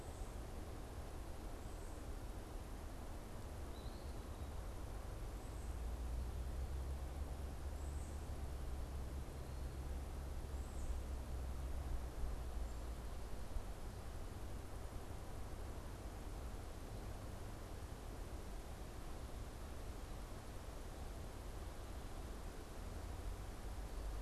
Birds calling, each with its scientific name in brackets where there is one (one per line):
unidentified bird